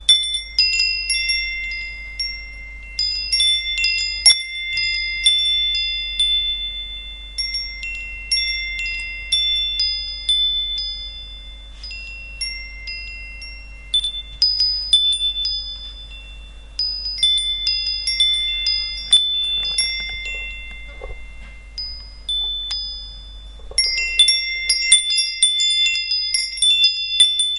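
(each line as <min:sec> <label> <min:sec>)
0:00.0 An irregular tinkling of a wind chime. 0:27.6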